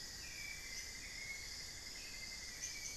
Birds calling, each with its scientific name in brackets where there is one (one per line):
unidentified bird
Hauxwell's Thrush (Turdus hauxwelli)
Cinnamon-throated Woodcreeper (Dendrexetastes rufigula)